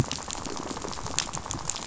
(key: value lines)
label: biophony, rattle
recorder: SoundTrap 500